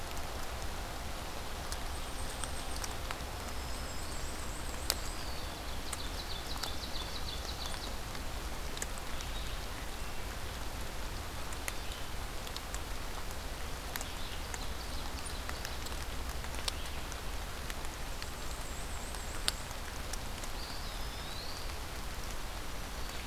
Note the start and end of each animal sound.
[1.80, 3.02] unidentified call
[3.24, 4.52] Black-throated Green Warbler (Setophaga virens)
[3.56, 5.25] Black-and-white Warbler (Mniotilta varia)
[4.86, 5.58] Eastern Wood-Pewee (Contopus virens)
[5.38, 7.86] Ovenbird (Seiurus aurocapilla)
[9.00, 14.44] Red-eyed Vireo (Vireo olivaceus)
[14.36, 16.09] Ovenbird (Seiurus aurocapilla)
[18.09, 19.78] Black-and-white Warbler (Mniotilta varia)
[20.38, 21.85] Eastern Wood-Pewee (Contopus virens)
[20.52, 21.76] Black-throated Green Warbler (Setophaga virens)

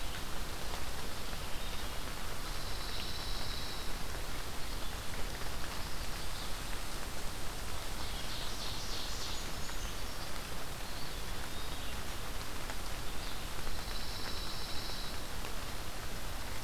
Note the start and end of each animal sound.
[2.25, 4.02] Pine Warbler (Setophaga pinus)
[7.80, 9.65] Ovenbird (Seiurus aurocapilla)
[8.98, 10.19] Brown Creeper (Certhia americana)
[10.71, 12.15] Eastern Wood-Pewee (Contopus virens)
[13.54, 15.54] Pine Warbler (Setophaga pinus)

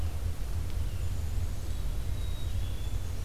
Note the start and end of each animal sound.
[0.00, 2.11] Red-eyed Vireo (Vireo olivaceus)
[0.99, 3.24] Black-capped Chickadee (Poecile atricapillus)

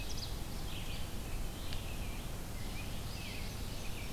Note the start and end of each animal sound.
[0.00, 0.61] Ovenbird (Seiurus aurocapilla)
[0.00, 4.13] Red-eyed Vireo (Vireo olivaceus)
[2.28, 4.13] American Robin (Turdus migratorius)

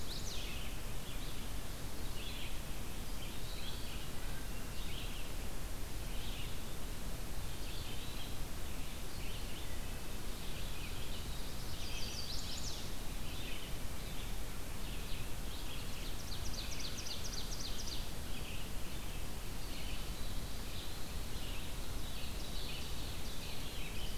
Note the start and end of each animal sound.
[0.00, 0.63] Chestnut-sided Warbler (Setophaga pensylvanica)
[0.00, 23.97] Red-eyed Vireo (Vireo olivaceus)
[2.90, 4.07] Eastern Wood-Pewee (Contopus virens)
[3.94, 4.88] Wood Thrush (Hylocichla mustelina)
[7.35, 8.48] Eastern Wood-Pewee (Contopus virens)
[9.47, 10.26] Wood Thrush (Hylocichla mustelina)
[11.61, 12.92] Chestnut-sided Warbler (Setophaga pensylvanica)
[16.05, 18.17] Ovenbird (Seiurus aurocapilla)
[21.97, 23.63] Ovenbird (Seiurus aurocapilla)

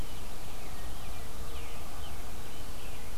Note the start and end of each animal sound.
[0.00, 3.17] Scarlet Tanager (Piranga olivacea)

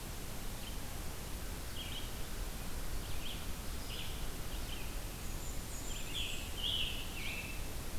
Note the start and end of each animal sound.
[1.02, 5.16] Red-eyed Vireo (Vireo olivaceus)
[5.13, 6.69] Black-and-white Warbler (Mniotilta varia)
[5.61, 7.88] Scarlet Tanager (Piranga olivacea)

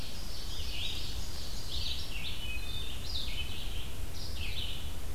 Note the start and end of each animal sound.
[0.00, 2.00] Ovenbird (Seiurus aurocapilla)
[0.00, 5.15] Red-eyed Vireo (Vireo olivaceus)
[2.38, 2.98] Wood Thrush (Hylocichla mustelina)

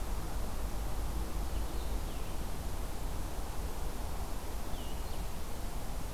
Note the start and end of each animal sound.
[1.64, 6.13] Blue-headed Vireo (Vireo solitarius)

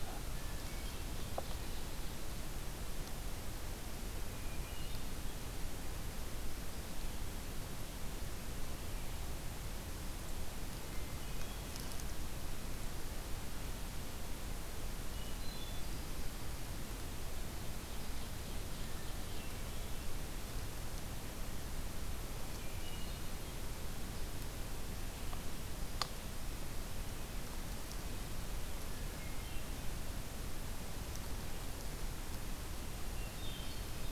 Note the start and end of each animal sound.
[0.07, 1.27] Hermit Thrush (Catharus guttatus)
[4.01, 5.53] Hermit Thrush (Catharus guttatus)
[10.88, 11.77] Hermit Thrush (Catharus guttatus)
[15.17, 16.21] Hermit Thrush (Catharus guttatus)
[17.54, 19.64] Ovenbird (Seiurus aurocapilla)
[19.19, 20.31] Hermit Thrush (Catharus guttatus)
[22.40, 23.53] Hermit Thrush (Catharus guttatus)
[28.77, 29.81] Hermit Thrush (Catharus guttatus)
[33.07, 34.01] Hermit Thrush (Catharus guttatus)

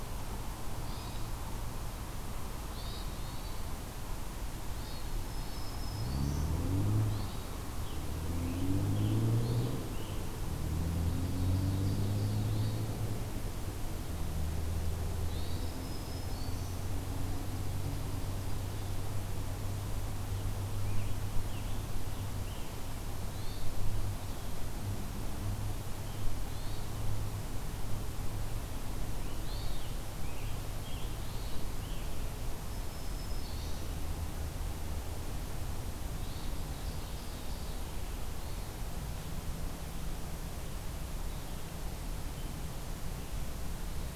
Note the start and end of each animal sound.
[0.73, 1.28] Hermit Thrush (Catharus guttatus)
[2.61, 3.09] Hermit Thrush (Catharus guttatus)
[4.68, 5.00] Hermit Thrush (Catharus guttatus)
[5.10, 6.59] Black-throated Green Warbler (Setophaga virens)
[7.01, 7.44] Hermit Thrush (Catharus guttatus)
[7.68, 10.30] Scarlet Tanager (Piranga olivacea)
[11.02, 12.51] Ovenbird (Seiurus aurocapilla)
[12.33, 12.92] Hermit Thrush (Catharus guttatus)
[15.20, 15.73] Hermit Thrush (Catharus guttatus)
[15.44, 16.92] Black-throated Green Warbler (Setophaga virens)
[20.25, 22.83] Scarlet Tanager (Piranga olivacea)
[23.18, 23.70] Hermit Thrush (Catharus guttatus)
[26.38, 26.89] Hermit Thrush (Catharus guttatus)
[29.09, 32.22] Scarlet Tanager (Piranga olivacea)
[29.34, 29.80] Hermit Thrush (Catharus guttatus)
[31.27, 31.74] Hermit Thrush (Catharus guttatus)
[32.66, 33.88] Black-throated Green Warbler (Setophaga virens)
[36.11, 36.59] Hermit Thrush (Catharus guttatus)
[36.60, 38.01] Ovenbird (Seiurus aurocapilla)
[38.27, 38.76] Hermit Thrush (Catharus guttatus)

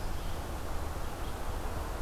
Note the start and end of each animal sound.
[0.00, 2.02] Red-eyed Vireo (Vireo olivaceus)

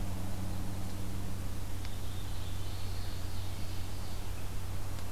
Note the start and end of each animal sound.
[1.46, 3.40] Black-throated Blue Warbler (Setophaga caerulescens)
[2.75, 4.27] Ovenbird (Seiurus aurocapilla)

